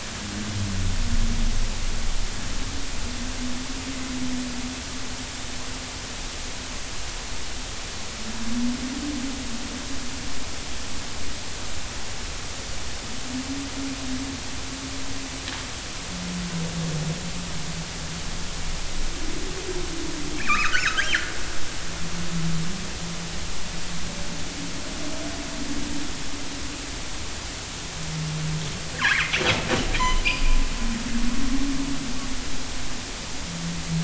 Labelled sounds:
20.4	21.2	killer whale, northern resident, G clan, 1.1 to 3.4 kHz
28.9	29.4	killer whale, northern resident, G clan, 1.4 to 2.6 kHz
30.0	30.2	killer whale, northern resident, G clan, call N24ii, 0.93 to 3.1 kHz

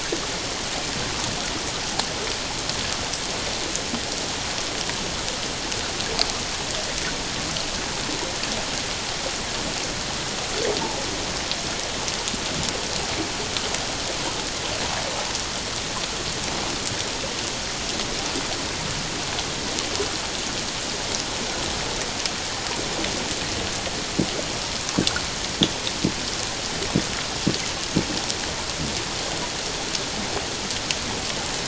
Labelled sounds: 10.8	11.1	humpback whale, 0.81 to 0.97 kHz

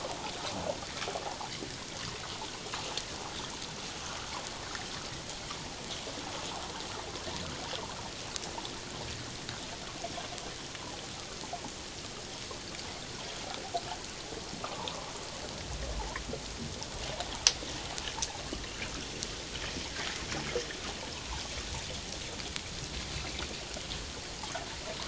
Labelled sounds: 14.6	15.1	water noise, 0.81 to 1.4 kHz
21.1	21.4	water noise, 0.81 to 1.2 kHz

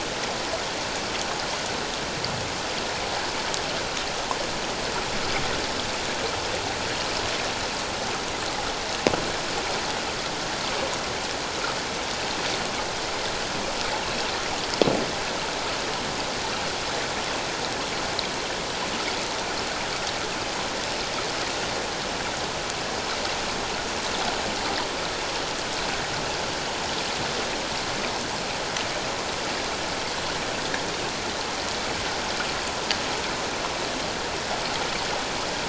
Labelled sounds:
14.0	14.3	water noise, 2.5 to 2.9 kHz

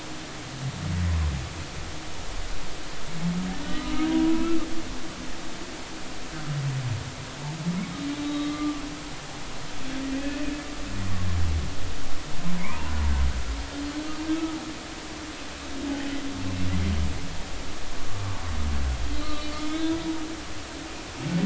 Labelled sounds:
3.6	4.6	humpback whale, 0.93 to 2.7 kHz
8.2	8.8	humpback whale, 1.1 to 3.9 kHz
10.2	10.4	humpback whale, 2.4 to 2.6 kHz
12.6	12.8	humpback whale, 1.9 to 2.6 kHz
13.5	14.6	humpback whale, 0.86 to 1.3 kHz
16.4	16.7	humpback whale, 2.6 to 2.7 kHz
19.1	20.0	humpback whale, 3.3 to 4.0 kHz

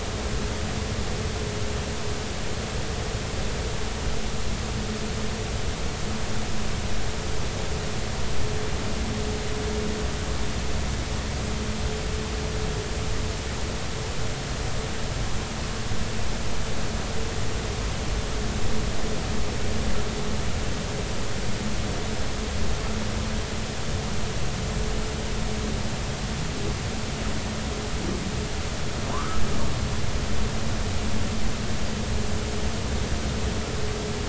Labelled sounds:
29.1	29.4	humpback whale, 0.90 to 1.4 kHz

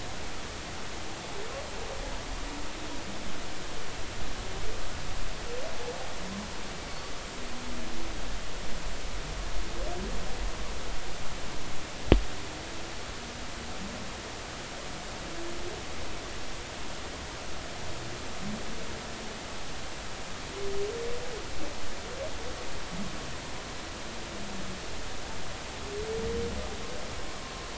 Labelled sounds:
6.9	7.1	humpback whale, 4.4 to 4.6 kHz

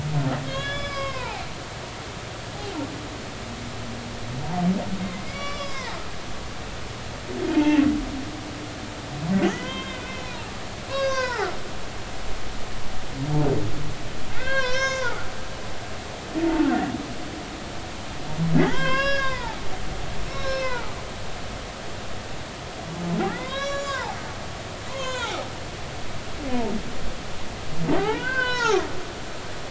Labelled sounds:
0.5	1.5	humpback whale, 0.80 to 5.2 kHz
5.2	6.0	humpback whale, 0.80 to 6.1 kHz
7.5	7.8	humpback whale, 0.83 to 2.8 kHz
9.4	11.6	humpback whale, 0.80 to 6.6 kHz
14.4	16.1	humpback whale, 0.80 to 6.5 kHz
16.4	16.7	humpback whale, 0.83 to 0.96 kHz
18.6	19.6	humpback whale, 0.80 to 5.6 kHz
20.3	22.0	humpback whale, 0.83 to 5.9 kHz
23.3	24.2	humpback whale, 0.80 to 7.4 kHz
24.9	25.4	humpback whale, 0.80 to 4.3 kHz
27.9	28.8	humpback whale, 0.80 to 4.6 kHz

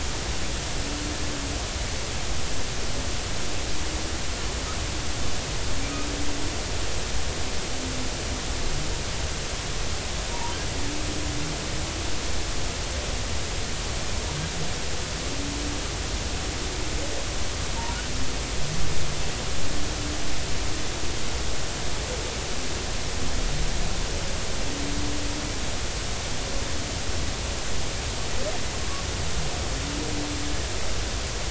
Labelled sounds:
10.3	10.6	humpback whale, 0.86 to 0.99 kHz

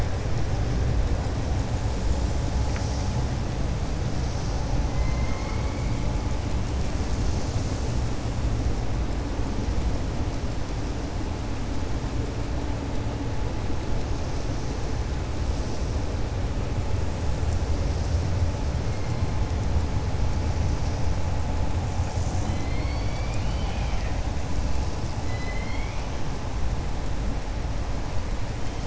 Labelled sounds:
4.9	5.9	killer whale, 1.0 to 3.0 kHz
22.4	24.2	killer whale, 1.4 to 5.6 kHz
25.2	26.0	killer whale, 2.0 to 5.1 kHz

